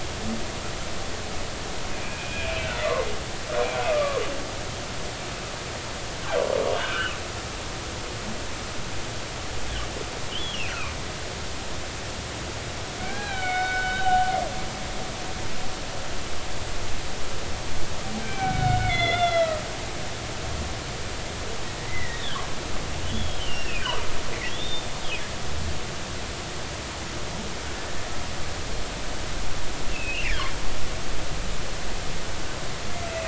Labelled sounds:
2.0	2.8	humpback whale, 2.3 to 2.8 kHz
3.9	4.2	humpback whale, 1.0 to 1.2 kHz
6.8	7.1	humpback whale, 1.3 to 1.7 kHz
10.3	10.9	humpback whale, 1.0 to 3.5 kHz
13.0	14.2	humpback whale, 0.80 to 4.1 kHz
18.2	19.6	humpback whale, 1.2 to 5.7 kHz
21.9	22.4	humpback whale, 1.5 to 3.8 kHz
23.1	23.9	humpback whale, 2.3 to 5.6 kHz
24.5	24.9	humpback whale, 3.2 to 3.7 kHz
29.9	30.6	humpback whale, 1.4 to 3.6 kHz

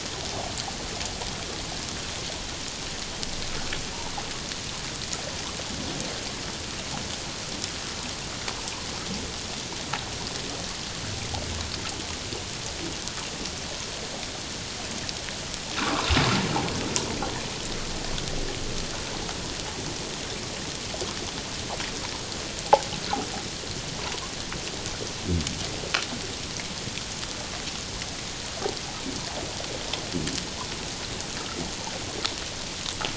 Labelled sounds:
15.8	16.1	water noise, 0.84 to 1.6 kHz

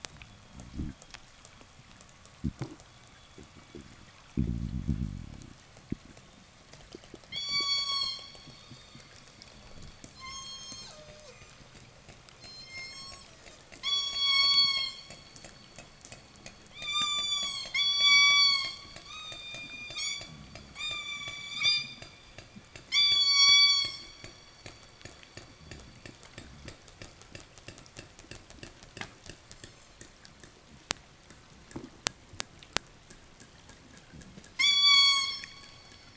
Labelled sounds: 0.0	5.9	killer whale, southern resident, 0 to 4.1 kHz
7.1	8.7	killer whale, southern resident, 0 to 8.0 kHz
9.8	11.9	killer whale, southern resident, 0 to 8.0 kHz
12.3	15.4	killer whale, southern resident, 0 to 8.0 kHz
16.5	24.6	killer whale, southern resident, 0 to 8.0 kHz
29.3	30.3	killer whale, southern resident, 1.2 to 8.0 kHz
34.4	36.1	killer whale, southern resident, 0.02 to 8.0 kHz

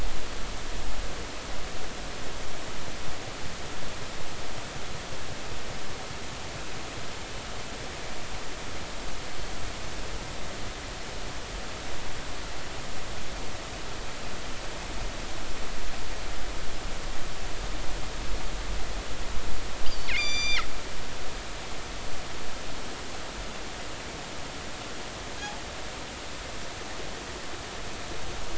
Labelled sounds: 19.9	20.7	killer whale, northern resident, G clan, call N23i, 1.8 to 7.3 kHz

